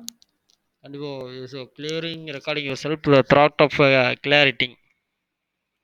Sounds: Throat clearing